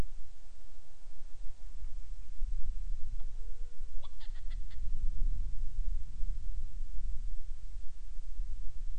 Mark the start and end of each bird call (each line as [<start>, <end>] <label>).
[2.97, 4.87] Hawaiian Petrel (Pterodroma sandwichensis)